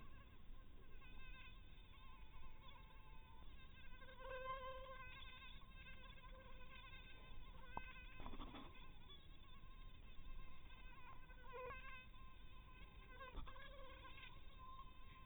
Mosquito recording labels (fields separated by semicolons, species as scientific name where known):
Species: mosquito; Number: one; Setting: cup